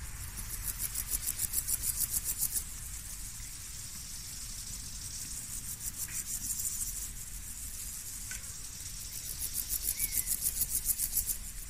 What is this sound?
Pseudochorthippus parallelus, an orthopteran